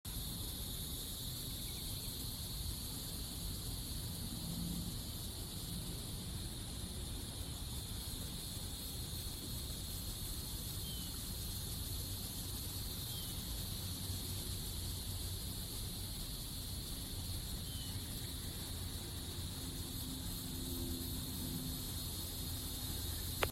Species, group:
Neocicada hieroglyphica
Cicadidae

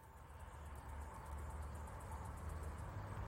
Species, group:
Microcentrum rhombifolium
Orthoptera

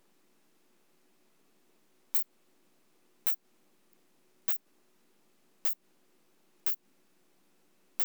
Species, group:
Isophya pyrenaea
Orthoptera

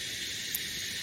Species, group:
Psaltoda harrisii
Cicadidae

